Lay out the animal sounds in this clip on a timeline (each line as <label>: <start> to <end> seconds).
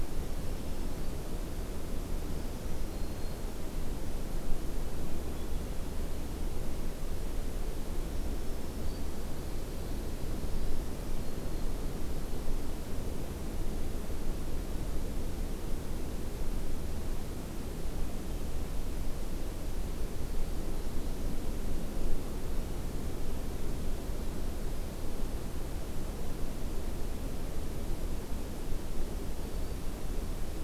Black-throated Green Warbler (Setophaga virens): 0.0 to 1.3 seconds
Black-throated Green Warbler (Setophaga virens): 2.3 to 3.7 seconds
Black-throated Green Warbler (Setophaga virens): 7.9 to 9.3 seconds
Black-throated Green Warbler (Setophaga virens): 10.5 to 11.9 seconds
Black-throated Green Warbler (Setophaga virens): 29.3 to 29.9 seconds